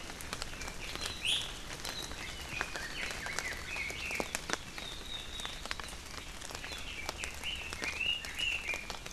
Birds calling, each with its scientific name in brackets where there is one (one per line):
Iiwi (Drepanis coccinea)
Hawaii Amakihi (Chlorodrepanis virens)
Red-billed Leiothrix (Leiothrix lutea)